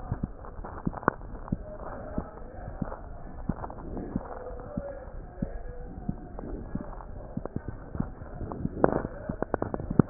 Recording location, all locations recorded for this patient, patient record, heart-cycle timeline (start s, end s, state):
aortic valve (AV)
aortic valve (AV)+pulmonary valve (PV)+tricuspid valve (TV)+mitral valve (MV)
#Age: Child
#Sex: Male
#Height: 105.0 cm
#Weight: 16.4 kg
#Pregnancy status: False
#Murmur: Absent
#Murmur locations: nan
#Most audible location: nan
#Systolic murmur timing: nan
#Systolic murmur shape: nan
#Systolic murmur grading: nan
#Systolic murmur pitch: nan
#Systolic murmur quality: nan
#Diastolic murmur timing: nan
#Diastolic murmur shape: nan
#Diastolic murmur grading: nan
#Diastolic murmur pitch: nan
#Diastolic murmur quality: nan
#Outcome: Normal
#Campaign: 2015 screening campaign
0.00	1.30	unannotated
1.30	1.51	diastole
1.51	1.55	S1
1.55	1.69	systole
1.69	1.75	S2
1.75	2.16	diastole
2.16	2.23	S1
2.23	2.32	systole
2.32	2.44	S2
2.44	2.80	diastole
2.80	2.86	S1
2.86	2.92	systole
2.92	2.96	S2
2.96	3.46	diastole
3.46	3.54	S1
3.54	3.60	systole
3.60	3.67	S2
3.67	4.13	diastole
4.13	4.19	S1
4.19	4.32	systole
4.32	4.38	S2
4.38	4.46	diastole
4.46	10.10	unannotated